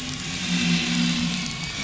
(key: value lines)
label: anthrophony, boat engine
recorder: SoundTrap 500